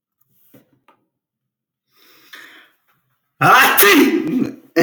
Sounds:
Sneeze